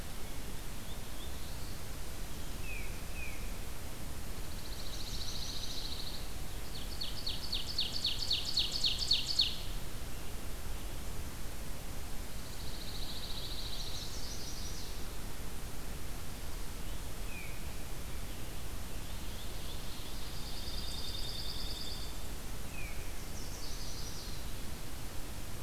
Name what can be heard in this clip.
Black-throated Blue Warbler, Tufted Titmouse, Pine Warbler, Chestnut-sided Warbler, Ovenbird